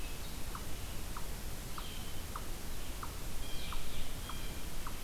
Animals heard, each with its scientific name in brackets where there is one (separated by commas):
Red-eyed Vireo (Vireo olivaceus), unknown mammal, Blue Jay (Cyanocitta cristata), Blue-headed Vireo (Vireo solitarius), Hermit Thrush (Catharus guttatus)